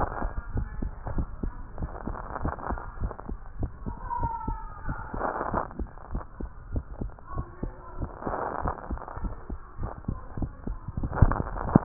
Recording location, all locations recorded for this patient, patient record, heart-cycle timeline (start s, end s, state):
tricuspid valve (TV)
aortic valve (AV)+pulmonary valve (PV)+tricuspid valve (TV)+mitral valve (MV)
#Age: Child
#Sex: Female
#Height: 136.0 cm
#Weight: 18.5 kg
#Pregnancy status: False
#Murmur: Absent
#Murmur locations: nan
#Most audible location: nan
#Systolic murmur timing: nan
#Systolic murmur shape: nan
#Systolic murmur grading: nan
#Systolic murmur pitch: nan
#Systolic murmur quality: nan
#Diastolic murmur timing: nan
#Diastolic murmur shape: nan
#Diastolic murmur grading: nan
#Diastolic murmur pitch: nan
#Diastolic murmur quality: nan
#Outcome: Abnormal
#Campaign: 2015 screening campaign
0.00	0.32	unannotated
0.32	0.52	diastole
0.52	0.68	S1
0.68	0.82	systole
0.82	0.92	S2
0.92	1.12	diastole
1.12	1.30	S1
1.30	1.40	systole
1.40	1.54	S2
1.54	1.76	diastole
1.76	1.90	S1
1.90	2.06	systole
2.06	2.16	S2
2.16	2.40	diastole
2.40	2.54	S1
2.54	2.68	systole
2.68	2.78	S2
2.78	2.98	diastole
2.98	3.12	S1
3.12	3.28	systole
3.28	3.38	S2
3.38	3.58	diastole
3.58	3.70	S1
3.70	3.88	systole
3.88	3.98	S2
3.98	4.20	diastole
4.20	4.32	S1
4.32	4.48	systole
4.48	4.64	S2
4.64	4.86	diastole
4.86	4.98	S1
4.98	5.14	systole
5.14	5.24	S2
5.24	5.52	diastole
5.52	5.64	S1
5.64	5.78	systole
5.78	5.88	S2
5.88	6.12	diastole
6.12	6.24	S1
6.24	6.40	systole
6.40	6.50	S2
6.50	6.72	diastole
6.72	6.88	S1
6.88	7.02	systole
7.02	7.12	S2
7.12	7.36	diastole
7.36	7.46	S1
7.46	7.64	systole
7.64	7.74	S2
7.74	8.00	diastole
8.00	8.10	S1
8.10	8.26	systole
8.26	8.38	S2
8.38	8.62	diastole
8.62	8.74	S1
8.74	8.90	systole
8.90	9.00	S2
9.00	9.22	diastole
9.22	9.36	S1
9.36	9.50	systole
9.50	9.60	S2
9.60	9.80	diastole
9.80	9.92	S1
9.92	10.04	systole
10.04	10.16	S2
10.16	10.38	diastole
10.38	10.52	S1
10.52	10.68	systole
10.68	10.78	S2
10.78	10.98	diastole
10.98	11.84	unannotated